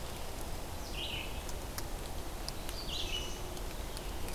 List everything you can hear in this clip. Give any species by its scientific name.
Vireo olivaceus, Poecile atricapillus